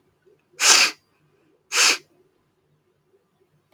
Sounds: Sniff